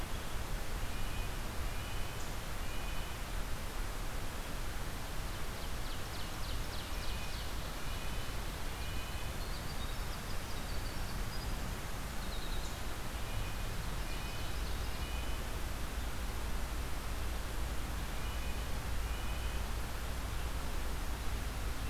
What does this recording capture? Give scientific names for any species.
Sitta canadensis, Seiurus aurocapilla, Troglodytes hiemalis